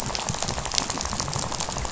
{"label": "biophony, rattle", "recorder": "SoundTrap 500"}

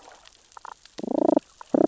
{"label": "biophony, damselfish", "recorder": "SoundTrap 600 or HydroMoth"}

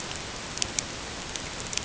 {"label": "ambient", "recorder": "HydroMoth"}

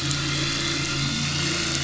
{"label": "anthrophony, boat engine", "recorder": "SoundTrap 500"}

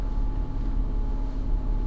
{"label": "anthrophony, boat engine", "recorder": "SoundTrap 300"}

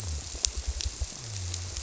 {"label": "biophony", "recorder": "SoundTrap 300"}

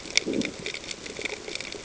{"label": "ambient", "recorder": "HydroMoth"}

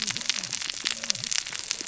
{"label": "biophony, cascading saw", "recorder": "SoundTrap 600 or HydroMoth"}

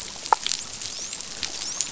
{"label": "biophony, dolphin", "recorder": "SoundTrap 500"}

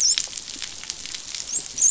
{"label": "biophony, dolphin", "recorder": "SoundTrap 500"}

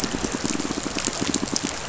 {"label": "biophony, pulse", "recorder": "SoundTrap 500"}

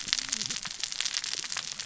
{"label": "biophony, cascading saw", "recorder": "SoundTrap 600 or HydroMoth"}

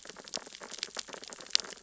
{"label": "biophony, sea urchins (Echinidae)", "recorder": "SoundTrap 600 or HydroMoth"}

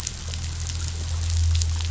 {"label": "anthrophony, boat engine", "recorder": "SoundTrap 500"}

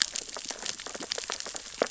{"label": "biophony, sea urchins (Echinidae)", "recorder": "SoundTrap 600 or HydroMoth"}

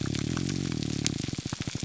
{"label": "biophony, grouper groan", "recorder": "SoundTrap 300"}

